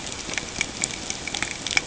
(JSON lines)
{"label": "ambient", "recorder": "HydroMoth"}